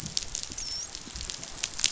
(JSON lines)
{"label": "biophony, dolphin", "recorder": "SoundTrap 500"}